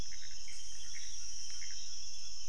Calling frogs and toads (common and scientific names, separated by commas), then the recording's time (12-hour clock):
Pithecopus azureus
11:30pm